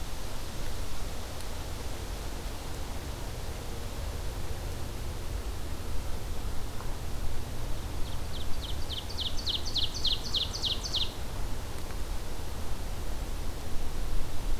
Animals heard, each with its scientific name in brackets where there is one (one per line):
Ovenbird (Seiurus aurocapilla)